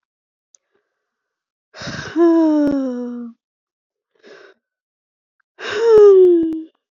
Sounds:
Sigh